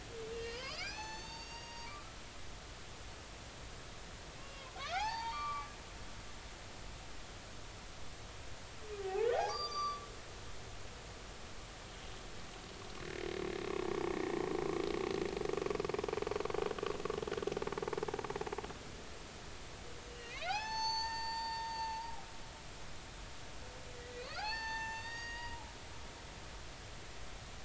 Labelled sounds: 0.3	1.9	humpback whale, 0.80 to 7.2 kHz
4.4	5.7	humpback whale, 0.80 to 4.8 kHz
9.0	10.0	humpback whale, 0.80 to 6.0 kHz
20.1	22.0	humpback whale, 0.80 to 7.3 kHz
24.2	25.7	humpback whale, 0.80 to 7.2 kHz

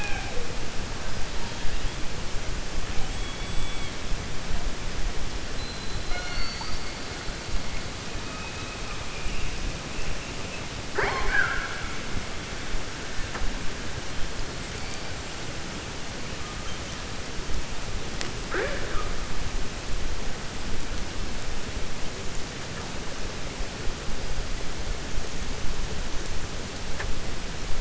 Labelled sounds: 10.8	11.9	killer whale, 0.37 to 4.5 kHz

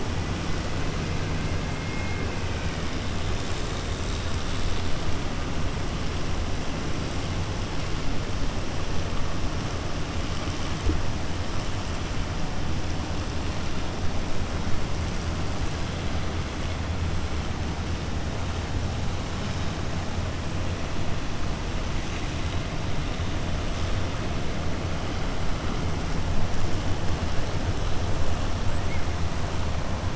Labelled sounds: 1.8	2.3	killer whale, 1.6 to 2.7 kHz

